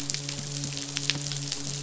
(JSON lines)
{"label": "biophony, midshipman", "recorder": "SoundTrap 500"}